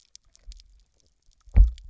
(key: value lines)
label: biophony, double pulse
recorder: SoundTrap 300